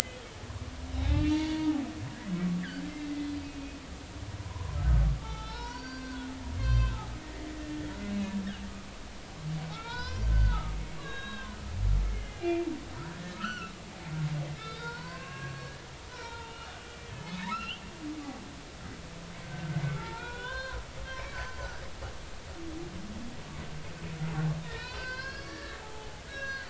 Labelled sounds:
0.9	1.9	humpback whale, 0.80 to 4.6 kHz
3.4	3.8	humpback whale, 2.4 to 2.6 kHz
4.4	7.1	humpback whale, 0.80 to 7.4 kHz
7.4	7.8	humpback whale, 1.8 to 2.0 kHz
9.7	12.7	humpback whale, 0.86 to 5.3 kHz
13.3	13.7	humpback whale, 1.1 to 4.6 kHz
14.5	15.8	humpback whale, 0.90 to 4.7 kHz
16.1	16.7	humpback whale, 0.86 to 2.9 kHz
17.1	17.8	humpback whale, 1.2 to 4.2 kHz
19.5	20.8	humpback whale, 0.83 to 4.3 kHz
21.1	21.7	humpback whale, 4.4 to 5.9 kHz
24.7	26.6	humpback whale, 0.80 to 5.9 kHz

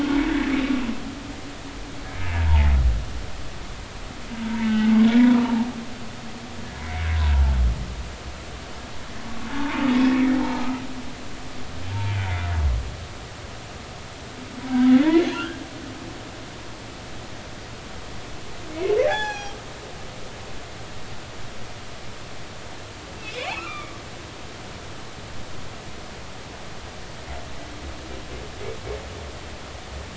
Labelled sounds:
2.3	2.7	humpback whale, 0.80 to 1.1 kHz
4.5	5.6	humpback whale, 0.80 to 2.9 kHz
6.8	7.1	humpback whale, 1.9 to 2.3 kHz
9.5	9.7	humpback whale, 0.83 to 0.96 kHz
10.4	10.8	humpback whale, 0.80 to 1.4 kHz
15.3	15.6	humpback whale, 1.3 to 1.7 kHz
18.7	19.6	humpback whale, 0.80 to 7.6 kHz
23.3	23.9	humpback whale, 1.1 to 2.8 kHz

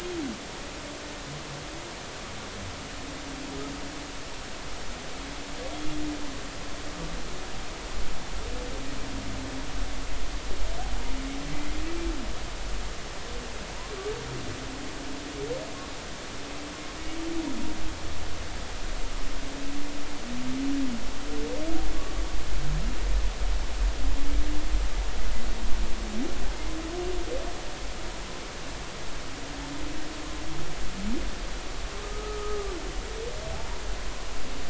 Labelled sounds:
32.0	32.7	humpback whale, 1.2 to 1.3 kHz

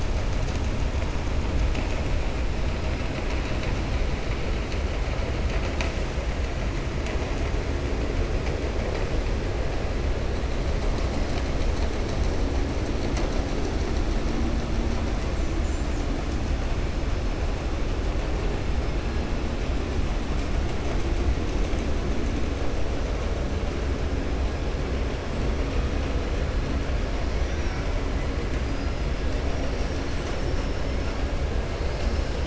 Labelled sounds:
27.3	27.8	killer whale, 4.8 to 6.3 kHz

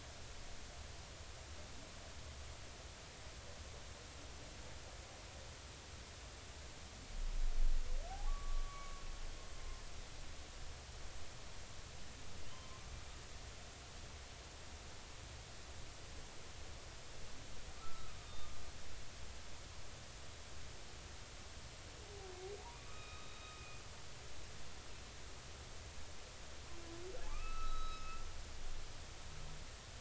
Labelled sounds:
8.1	9.0	humpback whale, 0.80 to 1.2 kHz
12.5	12.8	humpback whale, 0.99 to 1.1 kHz
17.8	18.5	humpback whale, 1.1 to 3.7 kHz
22.7	23.4	humpback whale, 1.1 to 3.8 kHz
27.3	28.2	humpback whale, 0.99 to 5.2 kHz

